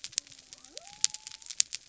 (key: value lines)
label: biophony
recorder: SoundTrap 300